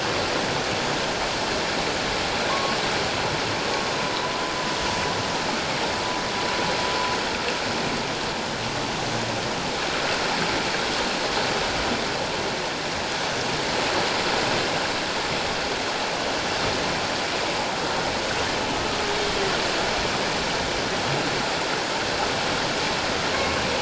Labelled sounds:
2.5	2.8	humpback whale, 1.0 to 1.2 kHz
23.3	23.6	humpback whale, 1.0 to 1.2 kHz

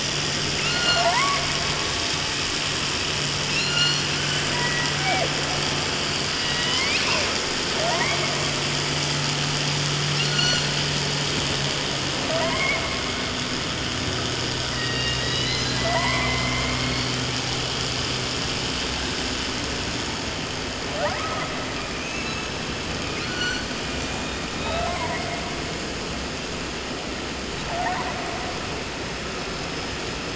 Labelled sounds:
0.5	1.5	killer whale, southern resident, 0.30 to 8.0 kHz
3.4	4.4	killer whale, southern resident, 0.30 to 8.0 kHz
4.5	5.3	killer whale, 0.20 to 2.9 kHz
6.3	7.3	killer whale, southern resident, J pod, call S01, 0.30 to 5.8 kHz
7.7	8.5	killer whale, 0.27 to 3.9 kHz
10.1	10.7	killer whale, southern resident, 0.30 to 8.0 kHz
12.2	13.3	killer whale, southern resident, 0.30 to 2.5 kHz
14.7	17.0	killer whale, southern resident, J pod, call S01, 0.30 to 7.9 kHz
20.9	21.5	killer whale, 0.29 to 8.0 kHz
21.9	22.6	killer whale, 0.34 to 8.0 kHz
23.1	23.7	killer whale, 0.78 to 8.0 kHz
24.6	25.2	killer whale, 0.30 to 4.2 kHz
27.6	28.2	killer whale, 0.37 to 2.5 kHz

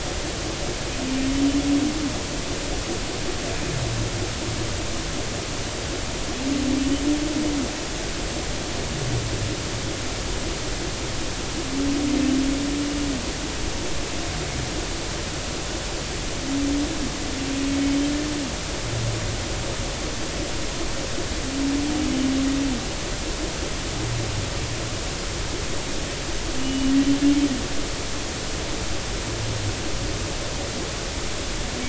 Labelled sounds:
26.6	26.9	humpback whale, 2.8 to 3.1 kHz

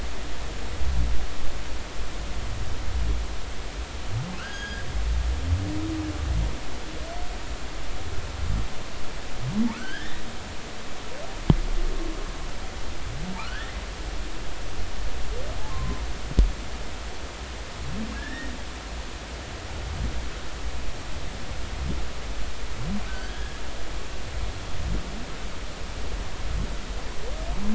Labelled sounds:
4.4	4.8	humpback whale, 1.3 to 3.4 kHz
9.7	10.2	humpback whale, 1.0 to 3.3 kHz
13.4	13.8	humpback whale, 1.1 to 2.1 kHz
15.7	16.0	humpback whale, 0.96 to 1.1 kHz
18.1	18.5	humpback whale, 1.6 to 1.9 kHz
23.1	23.6	humpback whale, 1.4 to 1.8 kHz

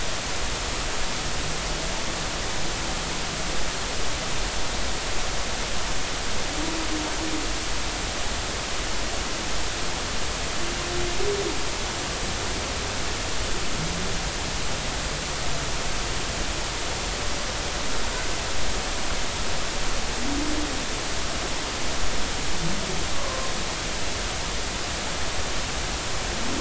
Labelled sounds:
23.1	23.5	humpback whale, 0.99 to 1.2 kHz

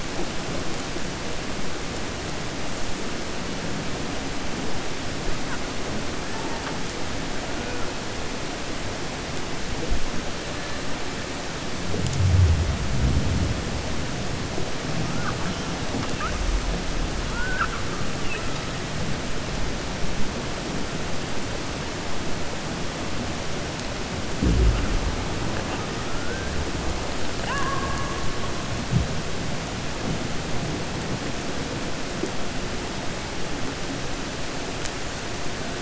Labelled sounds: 27.3	28.2	killer whale, 0.58 to 3.0 kHz

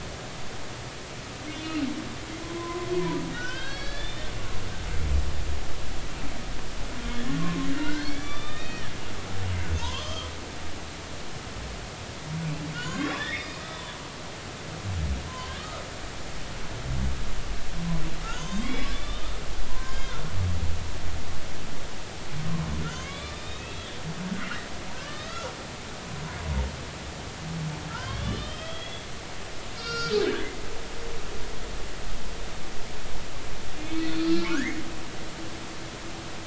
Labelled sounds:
2.6	4.3	humpback whale, 0.90 to 4.8 kHz
7.4	8.9	humpback whale, 0.99 to 4.5 kHz
9.8	10.3	humpback whale, 0.86 to 3.4 kHz
12.7	13.9	humpback whale, 0.96 to 7.6 kHz
15.3	15.8	humpback whale, 1.1 to 3.2 kHz
18.3	19.3	humpback whale, 0.96 to 6.4 kHz
19.6	20.2	humpback whale, 0.93 to 4.9 kHz
22.9	24.0	humpback whale, 1.1 to 3.9 kHz
25.0	25.5	humpback whale, 1.1 to 4.1 kHz
27.9	29.1	humpback whale, 1.3 to 5.2 kHz
29.8	30.5	humpback whale, 1.3 to 6.1 kHz
33.8	34.8	humpback whale, 1.2 to 5.2 kHz

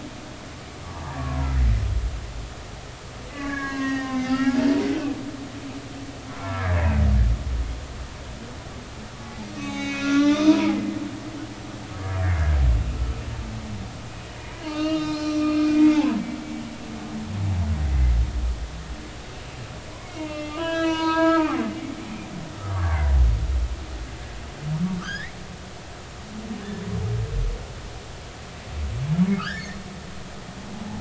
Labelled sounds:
1.2	1.5	humpback whale, 0.93 to 1.2 kHz
3.3	5.1	humpback whale, 0.80 to 6.3 kHz
6.4	6.7	humpback whale, 1.2 to 2.3 kHz
9.6	10.7	humpback whale, 0.80 to 7.7 kHz
12.9	13.2	humpback whale, 1.28 to 1.34 kHz
14.6	15.6	humpback whale, 1.2 to 5.8 kHz
17.8	18.1	humpback whale, 1.9 to 2.1 kHz
20.0	21.6	humpback whale, 0.90 to 6.2 kHz
22.7	23.1	humpback whale, 1.0 to 1.7 kHz
25.0	25.4	humpback whale, 1.1 to 5.2 kHz
29.3	29.7	humpback whale, 1.1 to 1.9 kHz

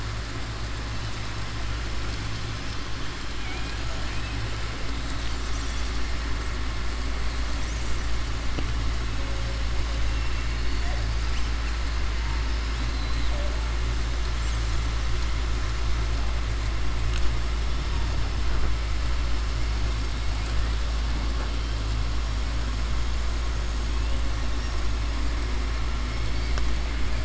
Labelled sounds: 3.3	3.8	killer whale, southern resident, 1.5 to 4.1 kHz
10.1	10.8	killer whale, southern resident, 2.2 to 4.8 kHz
12.8	13.3	killer whale, southern resident, 3.7 to 4.3 kHz

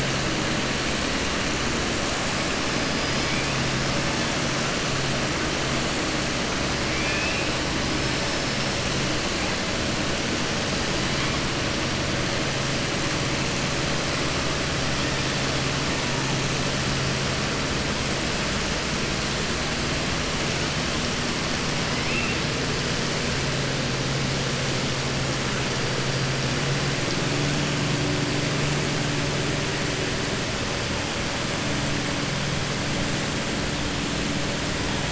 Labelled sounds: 2.7	3.4	killer whale, southern resident, 4.3 to 5.4 kHz
6.9	7.5	killer whale, southern resident, 1.7 to 3.6 kHz
8.2	8.7	killer whale, southern resident, 4.9 to 5.5 kHz
21.9	22.4	killer whale, southern resident, 2.0 to 2.8 kHz

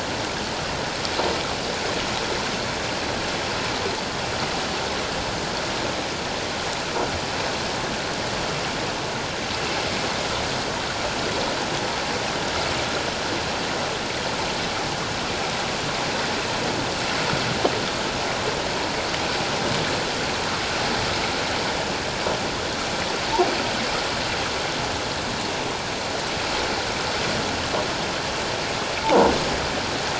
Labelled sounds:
29.0	29.3	croaking sound likely from a nearby submerged object, 0.78 to 1.1 kHz

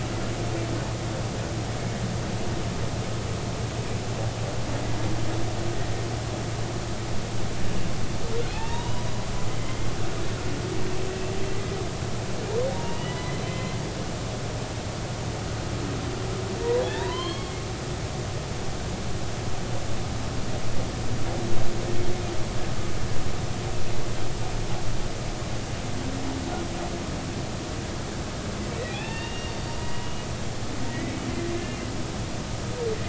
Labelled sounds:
8.5	9.1	humpback whale, 0.80 to 2.8 kHz
9.5	9.9	humpback whale, 2.0 to 3.2 kHz
12.7	13.8	humpback whale, 0.90 to 4.1 kHz
16.8	17.5	humpback whale, 0.80 to 4.4 kHz
28.9	30.3	humpback whale, 0.80 to 5.7 kHz
31.6	31.9	humpback whale, 2.0 to 2.8 kHz

